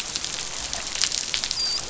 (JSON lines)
{"label": "biophony, dolphin", "recorder": "SoundTrap 500"}